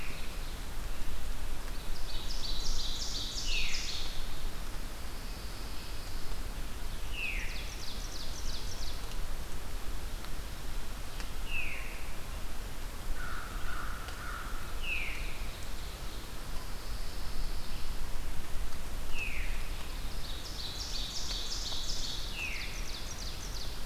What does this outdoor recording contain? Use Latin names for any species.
Seiurus aurocapilla, Catharus fuscescens, Setophaga pinus, Corvus brachyrhynchos